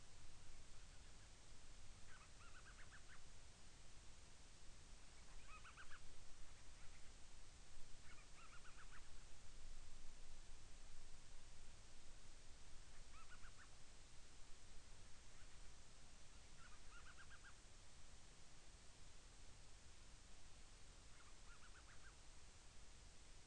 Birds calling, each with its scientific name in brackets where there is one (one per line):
Band-rumped Storm-Petrel (Hydrobates castro)